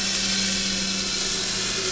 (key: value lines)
label: anthrophony, boat engine
recorder: SoundTrap 500